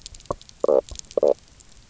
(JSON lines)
{"label": "biophony, knock croak", "recorder": "SoundTrap 300"}